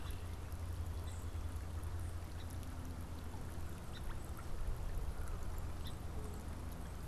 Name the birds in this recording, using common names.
Song Sparrow, Canada Goose